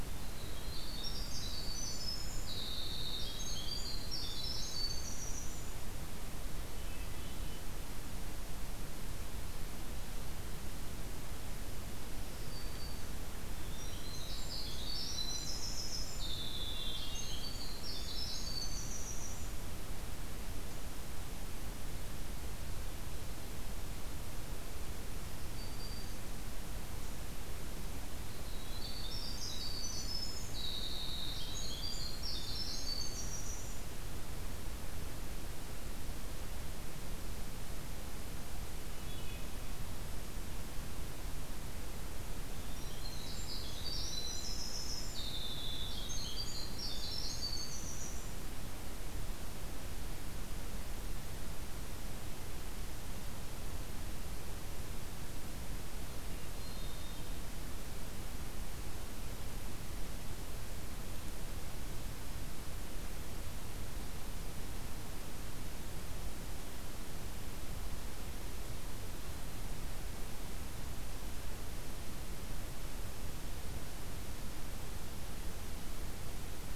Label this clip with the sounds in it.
Winter Wren, Hermit Thrush, Black-throated Green Warbler